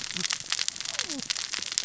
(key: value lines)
label: biophony, cascading saw
recorder: SoundTrap 600 or HydroMoth